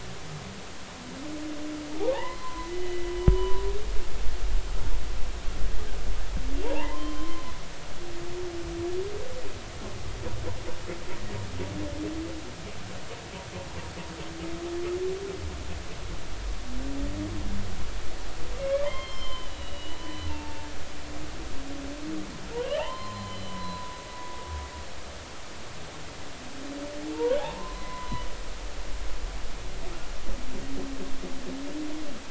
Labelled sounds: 2.1	3.6	humpback whale, 0.80 to 3.0 kHz
6.6	7.4	humpback whale, 0.80 to 1.1 kHz
18.6	20.7	humpback whale, 0.83 to 5.4 kHz
22.6	24.0	humpback whale, 0.80 to 4.1 kHz
27.4	28.2	humpback whale, 0.80 to 2.1 kHz

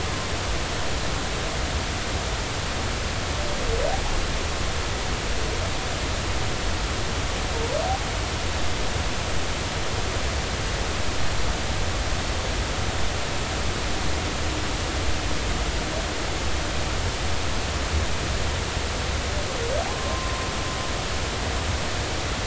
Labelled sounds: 19.9	20.5	humpback whale, 0.90 to 1.1 kHz

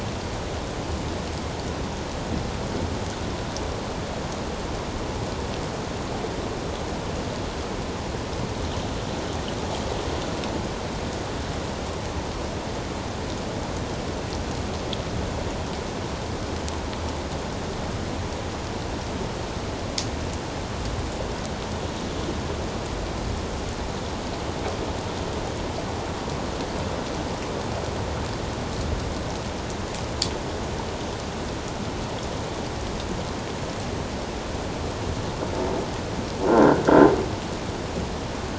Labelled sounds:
36.5	36.8	croaking sound likely from a nearby submerged object, 1.3 to 1.7 kHz

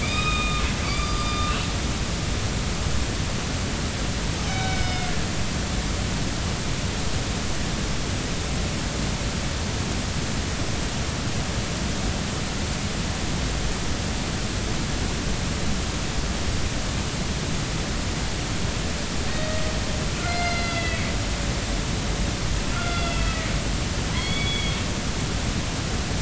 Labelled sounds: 0.0	1.5	killer whale, northern resident, A clan, AB subclan, call N05ii, 1.1 to 5.0 kHz
4.5	4.8	killer whale, northern resident, A clan, AB subclan, call N05ii, 3.7 to 3.8 kHz
4.5	5.1	killer whale, northern resident, A clan, AB subclan, B01 pod, call N18, 1.4 to 5.3 kHz
19.3	21.0	killer whale, northern resident, A clan, AB subclan, B01 pod, call N18, 1.3 to 5.0 kHz
22.7	23.5	killer whale, northern resident, A clan, AB subclan, B01 pod, call N18, 1.3 to 3.5 kHz
24.1	24.8	killer whale, northern resident, A clan, AB subclan, call N05ii, 2.0 to 4.5 kHz

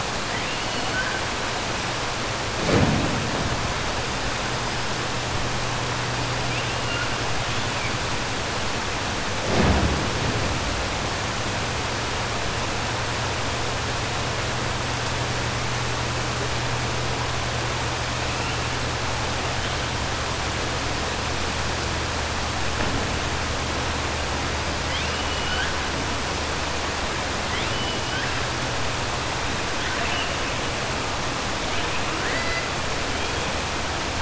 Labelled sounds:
24.8	25.7	killer whale, 1.4 to 4.4 kHz
29.7	30.3	killer whale, 1.5 to 3.7 kHz
32.1	32.7	killer whale, 1.3 to 2.7 kHz

